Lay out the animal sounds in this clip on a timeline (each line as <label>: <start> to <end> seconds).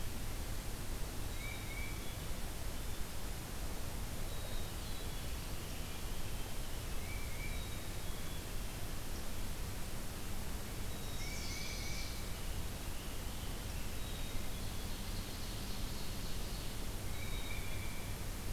Black-capped Chickadee (Poecile atricapillus): 1.0 to 2.3 seconds
Tufted Titmouse (Baeolophus bicolor): 1.1 to 2.1 seconds
Black-capped Chickadee (Poecile atricapillus): 4.1 to 5.4 seconds
Tufted Titmouse (Baeolophus bicolor): 6.8 to 7.7 seconds
Black-capped Chickadee (Poecile atricapillus): 7.4 to 8.6 seconds
Black-capped Chickadee (Poecile atricapillus): 10.7 to 11.7 seconds
Chestnut-sided Warbler (Setophaga pensylvanica): 10.8 to 12.4 seconds
Tufted Titmouse (Baeolophus bicolor): 11.0 to 12.4 seconds
Black-capped Chickadee (Poecile atricapillus): 13.7 to 14.9 seconds
Ovenbird (Seiurus aurocapilla): 14.4 to 16.9 seconds
Tufted Titmouse (Baeolophus bicolor): 17.0 to 18.3 seconds